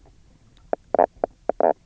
{"label": "biophony, knock croak", "recorder": "SoundTrap 300"}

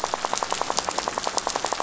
{"label": "biophony, rattle", "recorder": "SoundTrap 500"}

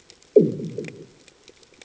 {"label": "anthrophony, bomb", "recorder": "HydroMoth"}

